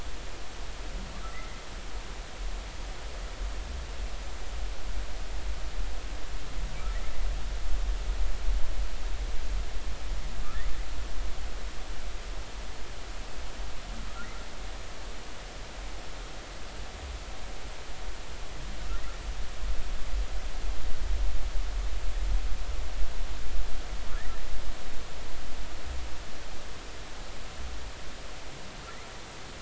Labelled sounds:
1.3	1.6	humpback whale, 1.9 to 2.1 kHz

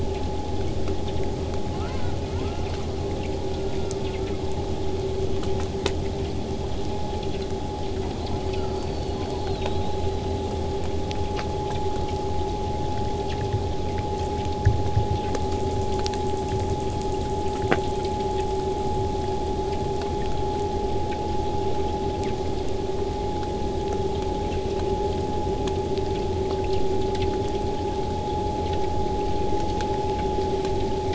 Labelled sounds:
1.6	2.8	killer whale, southern resident, 0.31 to 5.2 kHz
3.4	4.6	killer whale, southern resident, 0.89 to 3.6 kHz
7.9	10.6	killer whale, southern resident, 0.89 to 8.0 kHz
15.3	21.8	killer whale, southern resident, 5.4 to 8.0 kHz

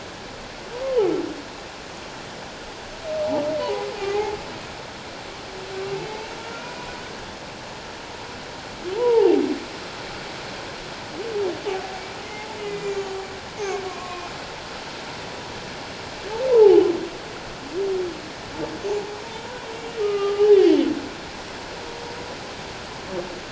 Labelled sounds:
3.6	4.3	humpback whale, 0.78 to 2.5 kHz
6.0	6.7	humpback whale, 1.3 to 2.3 kHz
7.0	7.3	humpback whale, 1.4 to 1.7 kHz
9.0	9.4	humpback whale, 0.78 to 1.0 kHz
12.3	13.2	humpback whale, 0.81 to 7.3 kHz
13.9	14.3	humpback whale, 0.97 to 2.7 kHz
16.5	16.9	humpback whale, 0.78 to 1.1 kHz
19.7	20.5	humpback whale, 1.1 to 2.9 kHz

